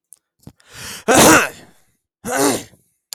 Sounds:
Throat clearing